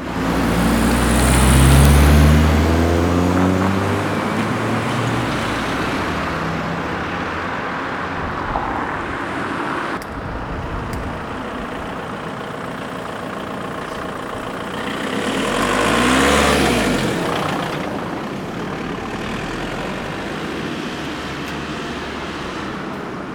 does the engine go lower and higher?
yes